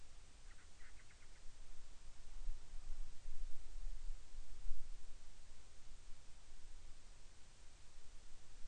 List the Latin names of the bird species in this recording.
Hydrobates castro